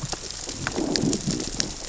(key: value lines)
label: biophony, growl
recorder: SoundTrap 600 or HydroMoth